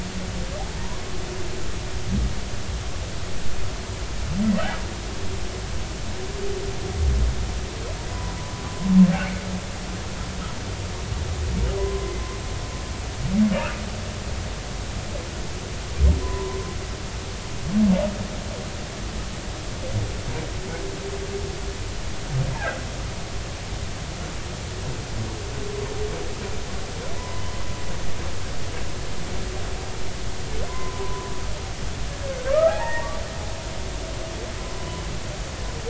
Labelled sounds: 8.1	8.4	humpback whale, 0.93 to 1.1 kHz
11.8	12.1	humpback whale, 0.96 to 1.1 kHz
16.2	16.6	humpback whale, 0.90 to 1.1 kHz
22.6	22.8	humpback whale, 1.3 to 1.8 kHz
27.2	27.5	humpback whale, 0.93 to 2.0 kHz
30.7	31.3	humpback whale, 0.90 to 1.1 kHz
32.5	33.1	humpback whale, 0.80 to 2.0 kHz
34.6	35.0	humpback whale, 0.96 to 1.1 kHz

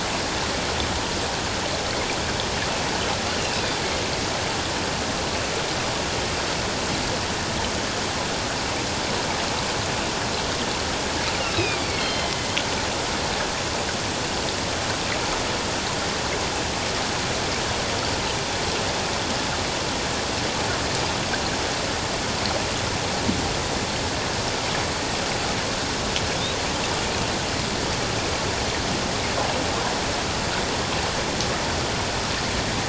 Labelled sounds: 3.4	4.0	killer whale, northern resident, A clan, AA subclan, call N04, 2.1 to 2.9 kHz
11.5	12.5	killer whale, northern resident, A clan, AA subclan, call N04, 2.0 to 4.3 kHz

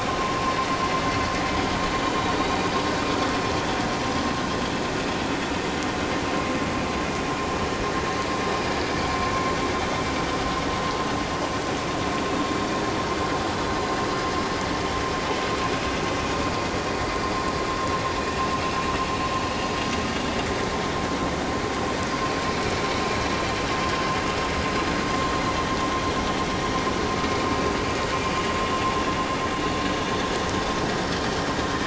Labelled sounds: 1.5	1.8	vessel noise, 3.2 to 3.4 kHz

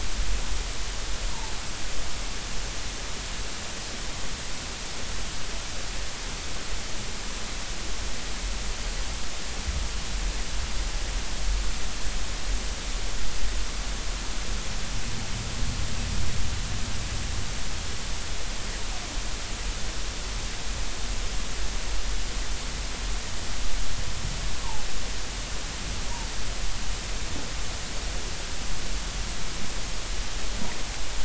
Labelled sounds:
24.6	24.8	humpback whale, 0.80 to 1.1 kHz

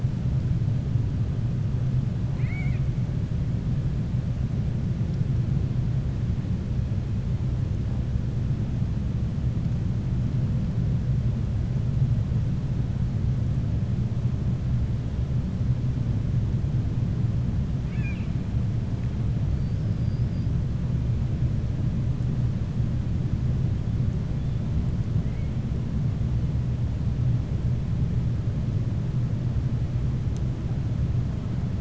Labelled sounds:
2.2	2.9	killer whale, 0.75 to 4.5 kHz
19.5	20.5	killer whale, 4.4 to 5.4 kHz

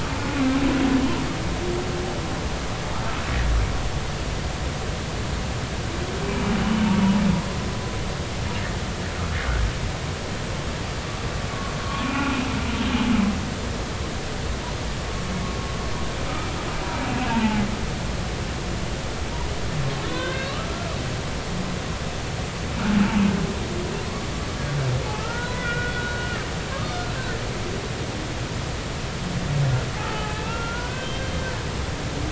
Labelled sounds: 6.3	6.9	humpback whale, 2.2 to 3.0 kHz
11.8	12.4	humpback whale, 1.1 to 2.6 kHz
17.3	17.7	humpback whale, 0.80 to 0.99 kHz
20.0	20.6	humpback whale, 0.96 to 3.7 kHz
25.2	27.1	humpback whale, 0.90 to 3.7 kHz
30.0	31.2	humpback whale, 0.80 to 3.2 kHz

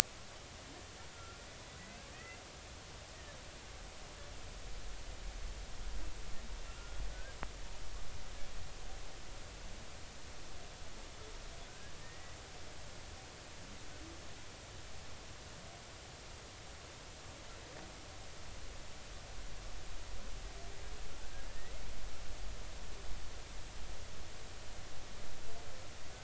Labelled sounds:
1.1	1.4	humpback whale, 1.3 to 1.5 kHz
2.1	2.4	humpback whale, 1.8 to 2.1 kHz
6.6	7.4	humpback whale, 1.4 to 2.8 kHz
11.7	12.3	humpback whale, 1.4 to 2.0 kHz
21.5	21.7	humpback whale, 1.7 to 2.0 kHz

